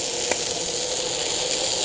{"label": "anthrophony, boat engine", "recorder": "HydroMoth"}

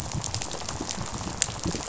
{"label": "biophony, rattle", "recorder": "SoundTrap 500"}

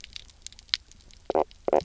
{"label": "biophony, knock croak", "recorder": "SoundTrap 300"}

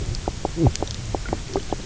{"label": "biophony, knock croak", "recorder": "SoundTrap 300"}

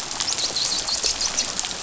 {"label": "biophony, dolphin", "recorder": "SoundTrap 500"}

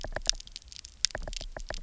{"label": "biophony, knock", "recorder": "SoundTrap 300"}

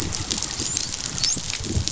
{"label": "biophony, dolphin", "recorder": "SoundTrap 500"}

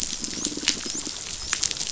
{"label": "biophony, dolphin", "recorder": "SoundTrap 500"}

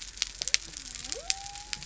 {"label": "biophony", "recorder": "SoundTrap 300"}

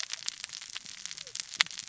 {"label": "biophony, cascading saw", "recorder": "SoundTrap 600 or HydroMoth"}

